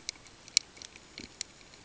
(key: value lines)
label: ambient
recorder: HydroMoth